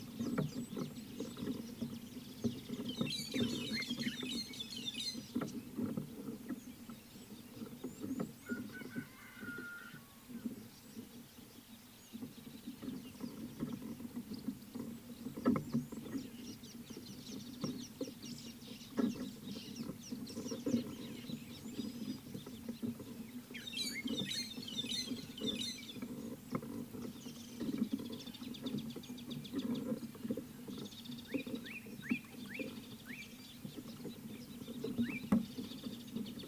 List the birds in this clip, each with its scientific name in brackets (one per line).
Speckled Mousebird (Colius striatus)
Red-cheeked Cordonbleu (Uraeginthus bengalus)
Scarlet-chested Sunbird (Chalcomitra senegalensis)
White-headed Buffalo-Weaver (Dinemellia dinemelli)
Slate-colored Boubou (Laniarius funebris)